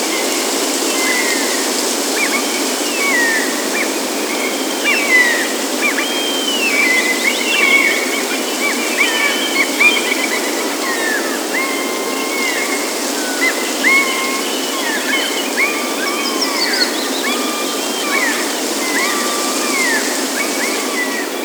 Is the woman sitting in her basement?
no